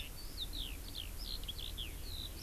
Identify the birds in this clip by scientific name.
Alauda arvensis